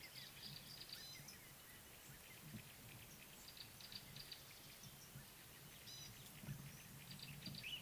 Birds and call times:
Gray-backed Camaroptera (Camaroptera brevicaudata): 4.0s

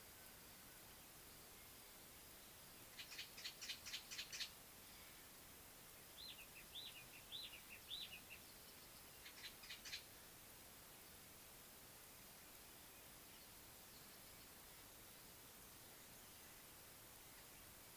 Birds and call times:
Brown Babbler (Turdoides plebejus): 3.9s, 9.7s

